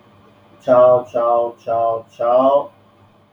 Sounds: Sneeze